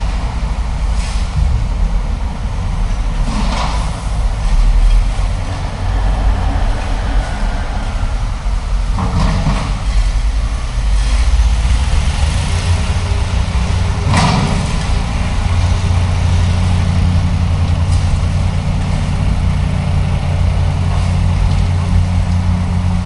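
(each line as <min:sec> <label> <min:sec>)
0:00.1 Busy street construction noises. 0:23.0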